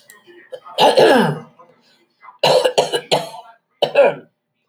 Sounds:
Throat clearing